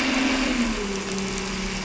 {"label": "anthrophony, boat engine", "recorder": "SoundTrap 300"}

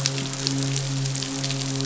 {"label": "biophony, midshipman", "recorder": "SoundTrap 500"}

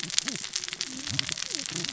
{"label": "biophony, cascading saw", "recorder": "SoundTrap 600 or HydroMoth"}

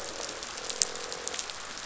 {"label": "biophony, croak", "recorder": "SoundTrap 500"}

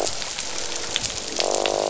{"label": "biophony, croak", "recorder": "SoundTrap 500"}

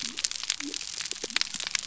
{"label": "biophony", "recorder": "SoundTrap 300"}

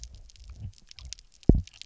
{"label": "biophony, double pulse", "recorder": "SoundTrap 300"}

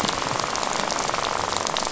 {"label": "biophony, rattle", "recorder": "SoundTrap 500"}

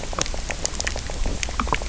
{"label": "biophony, knock croak", "recorder": "SoundTrap 300"}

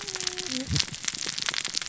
{"label": "biophony, cascading saw", "recorder": "SoundTrap 600 or HydroMoth"}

